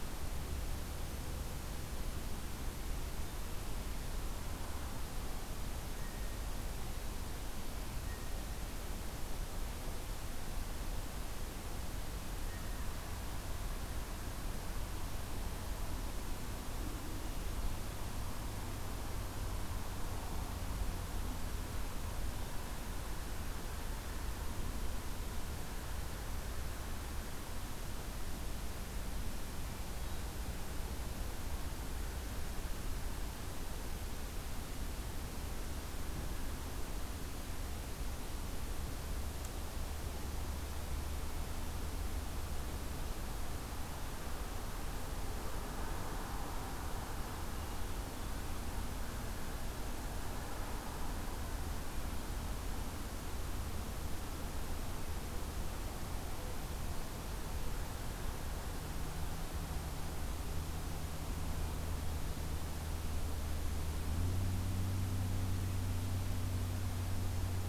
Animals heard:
forest ambience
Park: Acadia National Park